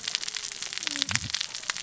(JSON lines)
{"label": "biophony, cascading saw", "recorder": "SoundTrap 600 or HydroMoth"}